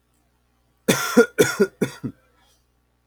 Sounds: Cough